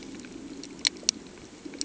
{"label": "anthrophony, boat engine", "recorder": "HydroMoth"}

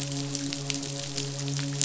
{"label": "biophony, midshipman", "recorder": "SoundTrap 500"}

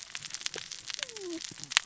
{"label": "biophony, cascading saw", "recorder": "SoundTrap 600 or HydroMoth"}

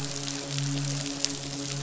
{"label": "biophony, midshipman", "recorder": "SoundTrap 500"}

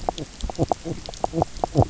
{"label": "biophony, knock croak", "recorder": "SoundTrap 300"}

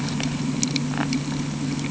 {"label": "anthrophony, boat engine", "recorder": "HydroMoth"}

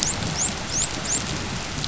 {"label": "biophony, dolphin", "recorder": "SoundTrap 500"}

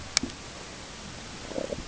{"label": "ambient", "recorder": "HydroMoth"}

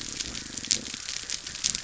{"label": "biophony", "recorder": "SoundTrap 300"}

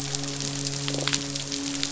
{"label": "biophony, midshipman", "recorder": "SoundTrap 500"}
{"label": "biophony", "recorder": "SoundTrap 500"}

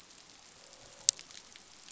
{"label": "biophony, croak", "recorder": "SoundTrap 500"}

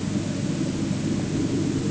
{"label": "anthrophony, boat engine", "recorder": "HydroMoth"}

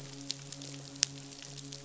{"label": "biophony, midshipman", "recorder": "SoundTrap 500"}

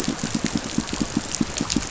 {"label": "biophony, pulse", "recorder": "SoundTrap 500"}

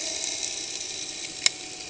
{"label": "anthrophony, boat engine", "recorder": "HydroMoth"}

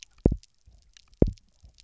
{"label": "biophony, double pulse", "recorder": "SoundTrap 300"}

